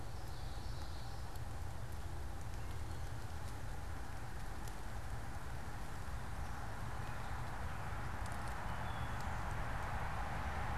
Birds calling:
Gray Catbird (Dumetella carolinensis), Common Yellowthroat (Geothlypis trichas)

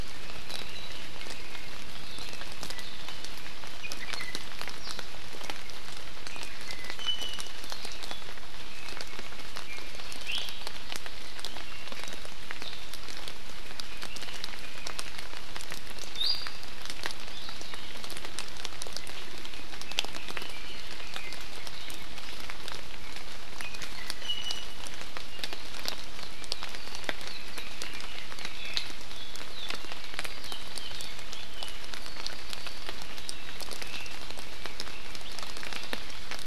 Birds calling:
Red-billed Leiothrix (Leiothrix lutea), Iiwi (Drepanis coccinea)

